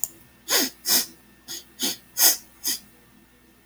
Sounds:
Sniff